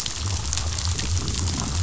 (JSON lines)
{"label": "biophony", "recorder": "SoundTrap 500"}